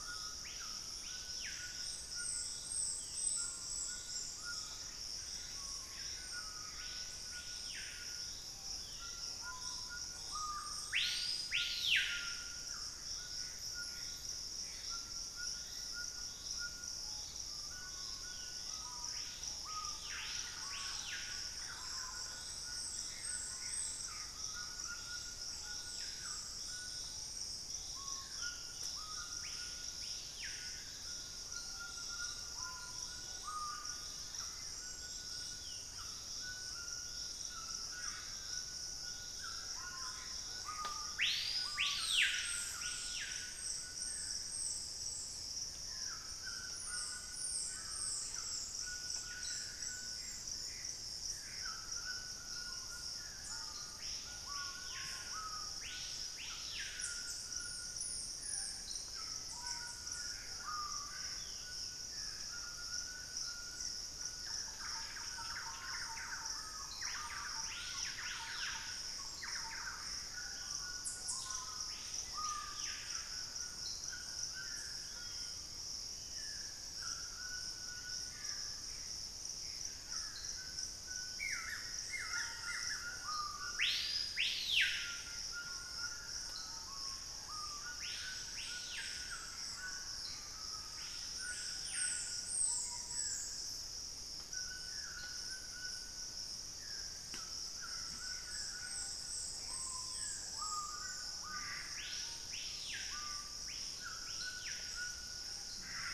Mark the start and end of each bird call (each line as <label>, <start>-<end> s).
Screaming Piha (Lipaugus vociferans), 0.0-93.3 s
White-throated Toucan (Ramphastos tucanus), 0.0-106.1 s
Hauxwell's Thrush (Turdus hauxwelli), 2.1-9.1 s
Gray Antbird (Cercomacra cinerascens), 13.0-15.0 s
Black-faced Cotinga (Conioptilon mcilhennyi), 15.3-16.1 s
Thrush-like Wren (Campylorhynchus turdinus), 19.8-22.3 s
Gray Antbird (Cercomacra cinerascens), 23.1-24.3 s
Black-faced Cotinga (Conioptilon mcilhennyi), 33.7-34.9 s
unidentified bird, 37.8-38.3 s
Gray Antbird (Cercomacra cinerascens), 39.5-41.1 s
Gray Antbird (Cercomacra cinerascens), 49.5-51.9 s
Dusky-throated Antshrike (Thamnomanes ardesiacus), 51.3-62.6 s
Gray Antbird (Cercomacra cinerascens), 58.9-61.7 s
Thrush-like Wren (Campylorhynchus turdinus), 64.3-70.3 s
Ash-throated Gnateater (Conopophaga peruviana), 70.3-70.9 s
unidentified bird, 70.8-71.9 s
Dusky-throated Antshrike (Thamnomanes ardesiacus), 72.3-80.7 s
Black-spotted Bare-eye (Phlegopsis nigromaculata), 75.0-76.9 s
Gray Antbird (Cercomacra cinerascens), 78.0-80.3 s
Buff-throated Woodcreeper (Xiphorhynchus guttatus), 81.3-83.0 s
Gray Antbird (Cercomacra cinerascens), 88.7-90.9 s
unidentified bird, 92.5-93.2 s
Dusky-throated Antshrike (Thamnomanes ardesiacus), 92.9-100.7 s
Screaming Piha (Lipaugus vociferans), 98.7-106.1 s
Dusky-throated Antshrike (Thamnomanes ardesiacus), 101.3-106.1 s